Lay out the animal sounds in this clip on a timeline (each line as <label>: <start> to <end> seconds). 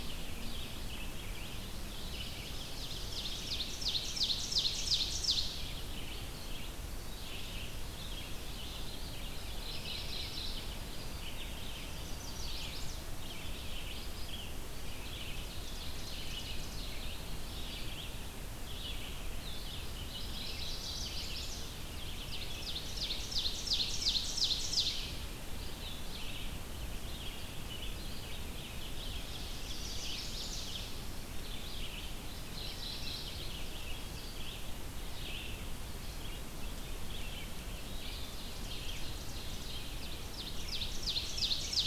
Red-eyed Vireo (Vireo olivaceus): 0.0 to 36.4 seconds
Ovenbird (Seiurus aurocapilla): 1.9 to 5.7 seconds
Mourning Warbler (Geothlypis philadelphia): 9.4 to 11.0 seconds
Chestnut-sided Warbler (Setophaga pensylvanica): 11.7 to 13.1 seconds
Ovenbird (Seiurus aurocapilla): 15.2 to 17.0 seconds
Mourning Warbler (Geothlypis philadelphia): 19.9 to 21.5 seconds
Chestnut-sided Warbler (Setophaga pensylvanica): 20.1 to 21.8 seconds
Ovenbird (Seiurus aurocapilla): 21.9 to 25.2 seconds
Mourning Warbler (Geothlypis philadelphia): 29.3 to 31.0 seconds
Chestnut-sided Warbler (Setophaga pensylvanica): 29.4 to 30.8 seconds
Mourning Warbler (Geothlypis philadelphia): 32.3 to 33.8 seconds
Red-eyed Vireo (Vireo olivaceus): 36.7 to 41.9 seconds
Ovenbird (Seiurus aurocapilla): 37.9 to 41.9 seconds